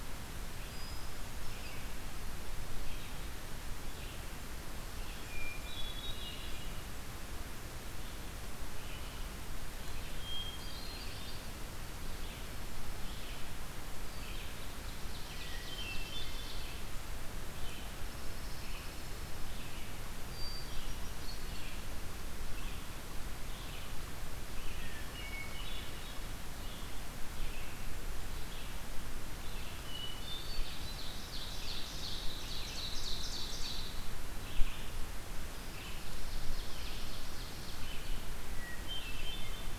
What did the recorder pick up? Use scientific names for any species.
Vireo olivaceus, Catharus guttatus, Seiurus aurocapilla, Junco hyemalis